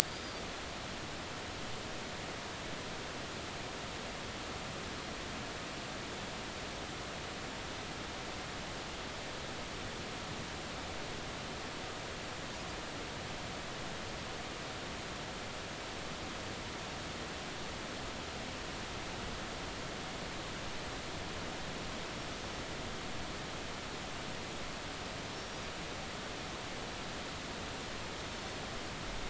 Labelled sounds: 0.1	0.4	Pacific white-sided dolphin, 4.5 to 5.0 kHz
25.3	25.6	Pacific white-sided dolphin, 5.3 to 5.8 kHz

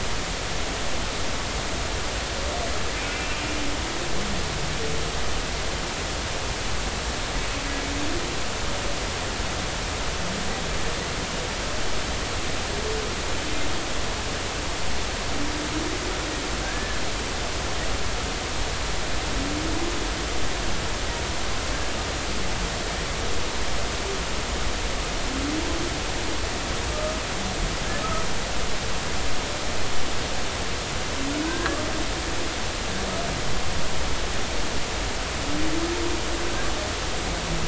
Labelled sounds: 16.6	17.0	humpback whale, 1.5 to 1.8 kHz
26.9	27.1	humpback whale, 1.2 to 1.3 kHz
31.4	31.8	humpback whale, 1.5 to 1.8 kHz

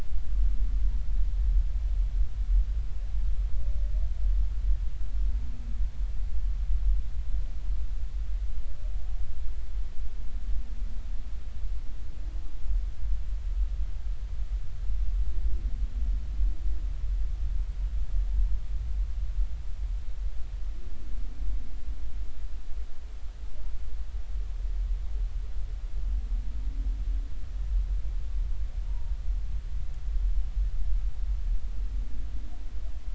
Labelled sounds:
28.9	29.1	humpback whale, 0.90 to 1.0 kHz

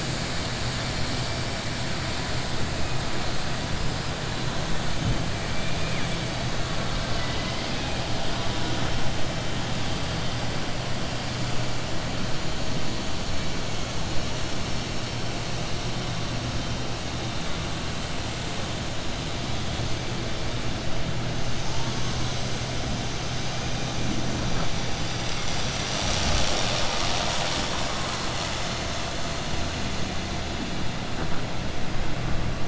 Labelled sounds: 6.9	8.0	killer whale, southern resident, 1.1 to 5.3 kHz

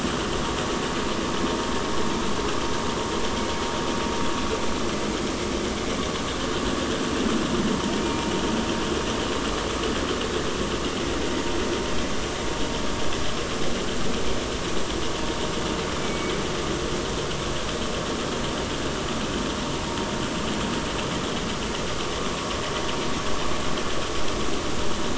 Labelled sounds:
8.0	8.3	killer whale, 2.2 to 2.5 kHz
16.0	16.3	killer whale, 2.2 to 2.4 kHz

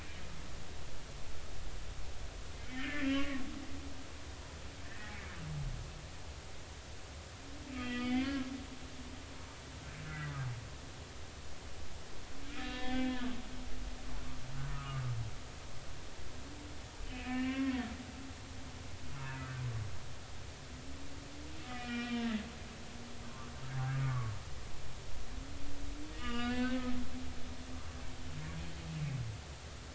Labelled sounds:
2.6	3.4	humpback whale, 1.0 to 3.2 kHz
4.8	5.1	humpback whale, 1.5 to 2.0 kHz
7.8	8.5	humpback whale, 1.5 to 3.6 kHz
10.1	10.3	humpback whale, 1.5 to 2.0 kHz
12.4	13.3	humpback whale, 0.80 to 3.8 kHz
14.7	15.0	humpback whale, 1.1 to 1.4 kHz
17.1	17.7	humpback whale, 0.99 to 2.9 kHz
19.2	19.5	humpback whale, 2.4 to 2.7 kHz
21.6	22.2	humpback whale, 1.2 to 3.2 kHz
23.9	24.3	humpback whale, 1.1 to 1.3 kHz
26.1	26.9	humpback whale, 0.99 to 4.7 kHz
27.7	28.0	humpback whale, 1.1 to 1.2 kHz

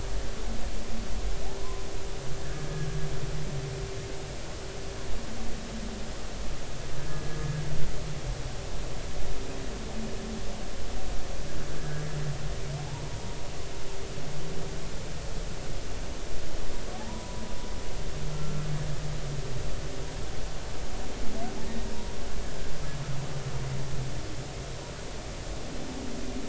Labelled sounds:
1.6	1.8	humpback whale, 0.93 to 1.1 kHz
11.8	12.0	humpback whale, 1.5 to 1.7 kHz
16.9	17.4	humpback whale, 0.80 to 1.1 kHz
18.3	18.7	humpback whale, 1.3 to 1.4 kHz

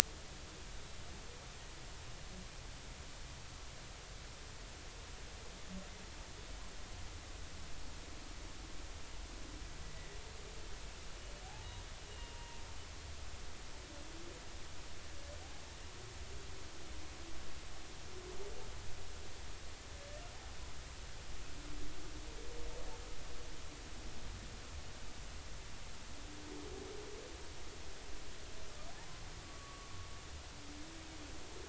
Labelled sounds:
12.1	12.6	humpback whale, 0.90 to 2.9 kHz
29.4	29.9	humpback whale, 1.1 to 1.2 kHz

